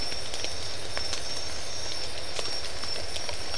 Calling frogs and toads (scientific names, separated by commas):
none